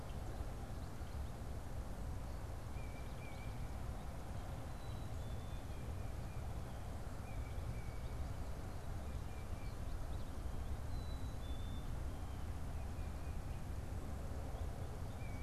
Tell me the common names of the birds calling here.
Black-capped Chickadee, unidentified bird